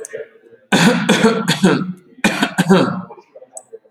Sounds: Cough